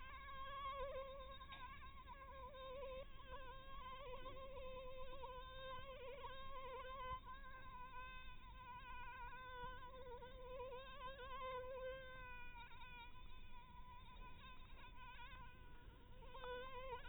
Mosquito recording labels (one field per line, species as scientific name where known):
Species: Anopheles dirus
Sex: female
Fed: blood-fed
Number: one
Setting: cup